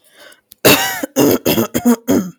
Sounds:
Throat clearing